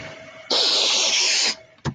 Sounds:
Sniff